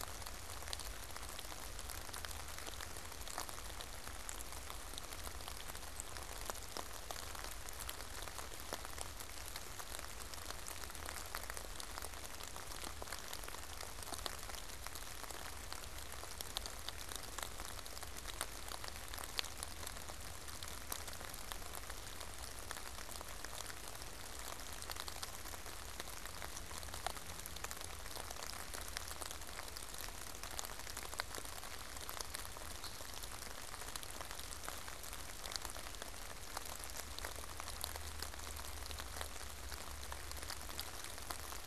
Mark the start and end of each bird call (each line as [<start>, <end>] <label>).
[32.77, 33.17] unidentified bird